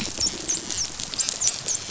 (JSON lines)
{"label": "biophony, dolphin", "recorder": "SoundTrap 500"}